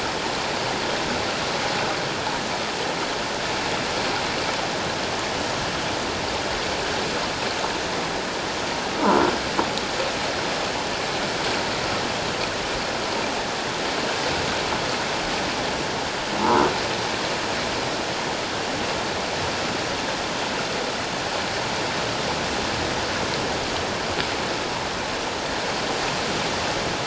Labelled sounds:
16.4	16.7	croaking sound likely from a nearby submerged object, 0.84 to 1.1 kHz

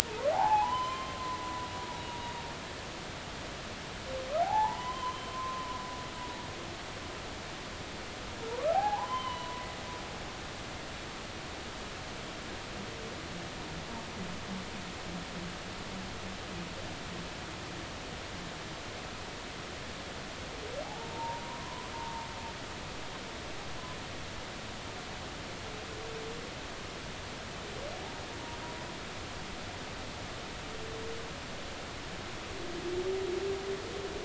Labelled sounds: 0.0	1.7	humpback whale, 0.80 to 3.2 kHz
2.0	2.3	humpback whale, 0.90 to 6.8 kHz
4.4	5.7	humpback whale, 0.80 to 3.2 kHz
8.7	9.6	humpback whale, 0.80 to 3.2 kHz
20.8	22.2	humpback whale, 0.80 to 1.1 kHz

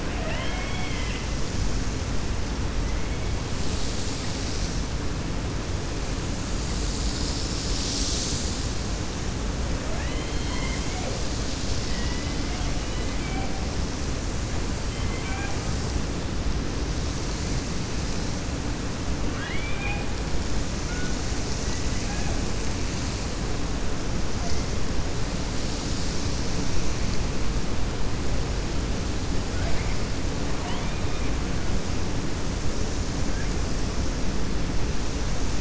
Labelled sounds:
0.0	1.3	killer whale, 0.63 to 3.4 kHz
9.8	11.2	killer whale, 0.52 to 3.2 kHz
11.8	12.7	killer whale, 0.99 to 3.5 kHz
14.9	15.6	killer whale, 0.76 to 3.2 kHz
19.2	20.1	killer whale, 0.81 to 3.7 kHz

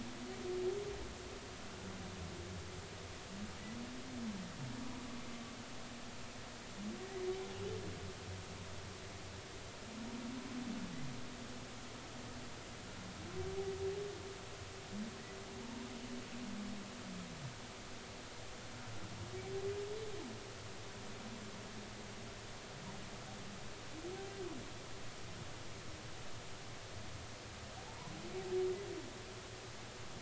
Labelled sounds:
15.6	15.9	humpback whale, 0.86 to 1.1 kHz
27.8	28.1	humpback whale, 0.80 to 1.1 kHz

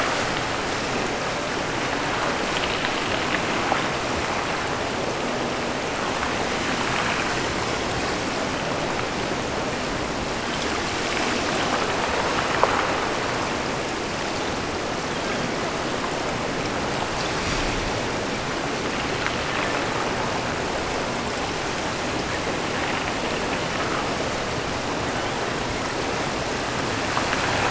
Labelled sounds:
15.0	15.6	killer whale, offshore, 1.4 to 3.5 kHz

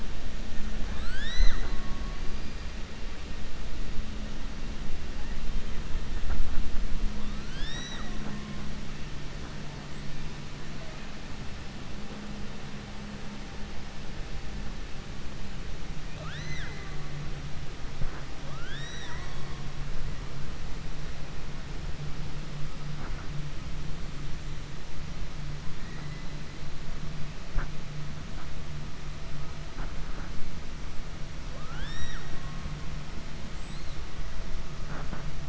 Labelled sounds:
7.3	8.6	killer whale, 0.58 to 7.8 kHz
16.0	17.0	killer whale, 0.45 to 6.1 kHz
18.4	19.5	killer whale, 0.69 to 7.8 kHz
25.8	26.2	killer whale, 1.3 to 2.3 kHz
31.4	32.5	killer whale, 0.55 to 7.7 kHz

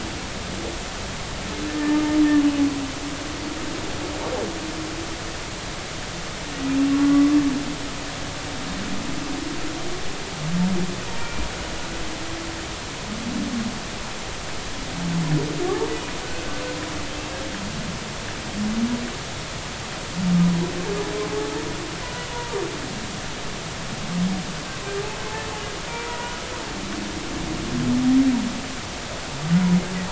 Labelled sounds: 6.9	7.4	humpback whale, 1.0 to 1.2 kHz
11.0	11.4	humpback whale, 0.90 to 2.4 kHz
22.3	22.6	humpback whale, 0.90 to 1.0 kHz
25.9	26.4	humpback whale, 0.90 to 1.0 kHz

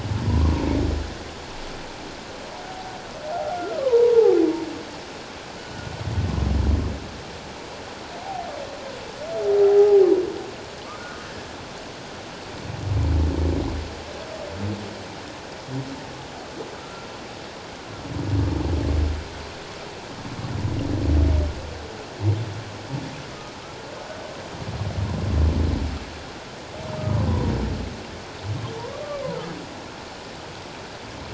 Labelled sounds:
0.3	0.6	humpback whale, 0.91 to 1.2 kHz
3.5	4.4	humpback whale, 0.78 to 1.5 kHz
9.7	10.0	humpback whale, 0.78 to 0.88 kHz
16.8	17.1	humpback whale, 1.2 to 1.4 kHz
27.3	27.5	humpback whale, 0.91 to 1.1 kHz

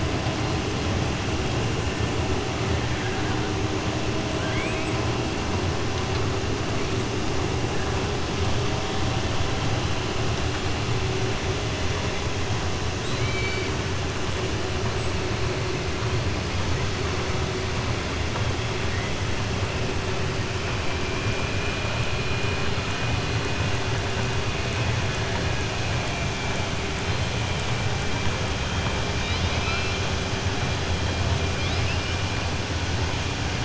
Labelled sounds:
13.0	13.7	killer whale, southern resident, 1.5 to 4.7 kHz
29.1	30.0	killer whale, southern resident, 1.3 to 5.0 kHz
31.5	32.2	killer whale, southern resident, 2.2 to 5.1 kHz

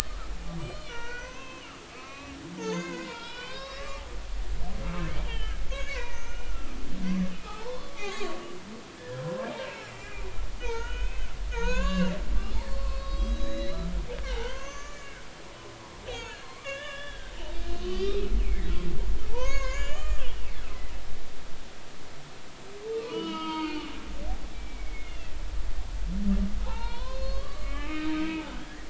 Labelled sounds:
0.6	4.5	humpback whale, 0.90 to 8.0 kHz
4.8	10.2	humpback whale, 0.80 to 6.3 kHz
10.6	13.9	humpback whale, 0.86 to 7.2 kHz
14.2	15.2	humpback whale, 0.80 to 7.0 kHz
16.1	17.4	humpback whale, 0.99 to 4.7 kHz
17.8	18.7	humpback whale, 1.7 to 4.8 kHz
19.3	20.2	humpback whale, 0.83 to 7.4 kHz
22.9	25.3	humpback whale, 0.86 to 5.3 kHz
26.6	28.8	humpback whale, 0.80 to 4.5 kHz

